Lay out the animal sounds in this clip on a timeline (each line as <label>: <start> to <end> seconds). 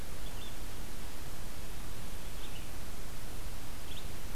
Red-eyed Vireo (Vireo olivaceus): 0.0 to 4.3 seconds